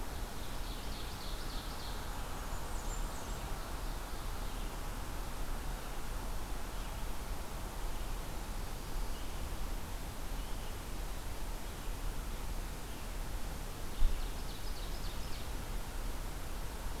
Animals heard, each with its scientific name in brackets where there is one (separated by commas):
Ovenbird (Seiurus aurocapilla), Blackburnian Warbler (Setophaga fusca)